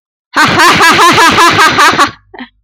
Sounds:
Laughter